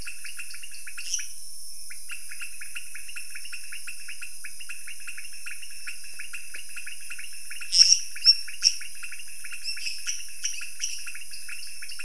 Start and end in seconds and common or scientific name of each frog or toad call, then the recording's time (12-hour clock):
0.0	0.9	dwarf tree frog
0.0	1.3	pointedbelly frog
1.0	1.4	lesser tree frog
1.9	12.0	pointedbelly frog
7.7	8.9	lesser tree frog
10.0	11.1	lesser tree frog
11.1	12.0	dwarf tree frog
3:00am